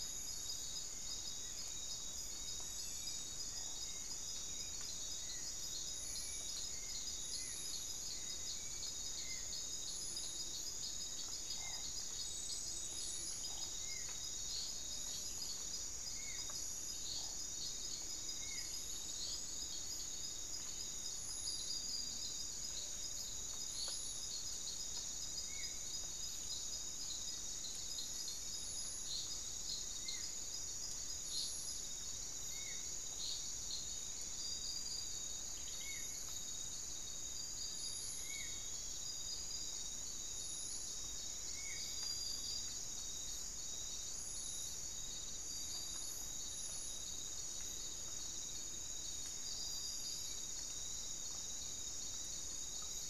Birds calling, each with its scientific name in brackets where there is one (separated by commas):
Spot-winged Antshrike (Pygiptila stellaris), Hauxwell's Thrush (Turdus hauxwelli)